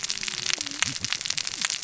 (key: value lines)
label: biophony, cascading saw
recorder: SoundTrap 600 or HydroMoth